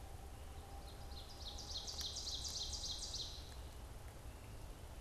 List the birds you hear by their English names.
Ovenbird